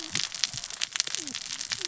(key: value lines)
label: biophony, cascading saw
recorder: SoundTrap 600 or HydroMoth